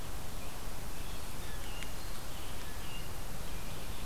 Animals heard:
forest ambience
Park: Katahdin Woods and Waters National Monument